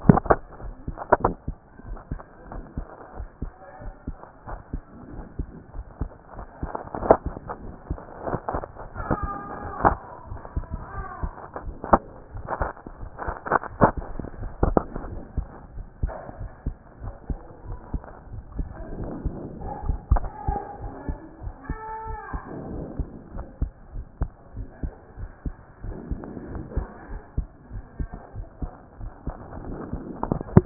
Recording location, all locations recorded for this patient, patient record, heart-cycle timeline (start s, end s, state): aortic valve (AV)
aortic valve (AV)+pulmonary valve (PV)+tricuspid valve (TV)+mitral valve (MV)
#Age: Adolescent
#Sex: Male
#Height: 155.0 cm
#Weight: 40.0 kg
#Pregnancy status: False
#Murmur: Absent
#Murmur locations: nan
#Most audible location: nan
#Systolic murmur timing: nan
#Systolic murmur shape: nan
#Systolic murmur grading: nan
#Systolic murmur pitch: nan
#Systolic murmur quality: nan
#Diastolic murmur timing: nan
#Diastolic murmur shape: nan
#Diastolic murmur grading: nan
#Diastolic murmur pitch: nan
#Diastolic murmur quality: nan
#Outcome: Normal
#Campaign: 2014 screening campaign
0.00	1.75	unannotated
1.75	1.86	diastole
1.86	1.98	S1
1.98	2.10	systole
2.10	2.20	S2
2.20	2.52	diastole
2.52	2.64	S1
2.64	2.76	systole
2.76	2.86	S2
2.86	3.16	diastole
3.16	3.28	S1
3.28	3.42	systole
3.42	3.52	S2
3.52	3.82	diastole
3.82	3.94	S1
3.94	4.06	systole
4.06	4.16	S2
4.16	4.48	diastole
4.48	4.60	S1
4.60	4.72	systole
4.72	4.82	S2
4.82	5.12	diastole
5.12	5.24	S1
5.24	5.38	systole
5.38	5.46	S2
5.46	5.74	diastole
5.74	5.86	S1
5.86	6.00	systole
6.00	6.10	S2
6.10	6.36	diastole
6.36	30.66	unannotated